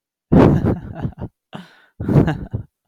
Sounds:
Laughter